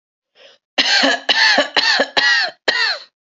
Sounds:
Cough